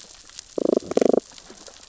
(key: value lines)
label: biophony, damselfish
recorder: SoundTrap 600 or HydroMoth